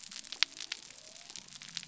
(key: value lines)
label: biophony
recorder: SoundTrap 300